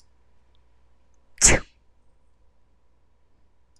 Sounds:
Sneeze